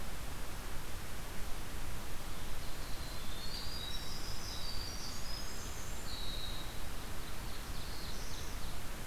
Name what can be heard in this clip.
Winter Wren, Ovenbird, Black-throated Blue Warbler